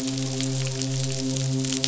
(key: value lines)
label: biophony, midshipman
recorder: SoundTrap 500